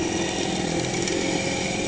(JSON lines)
{"label": "anthrophony, boat engine", "recorder": "HydroMoth"}